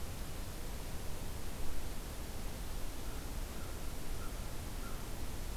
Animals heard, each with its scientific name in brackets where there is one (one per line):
American Crow (Corvus brachyrhynchos)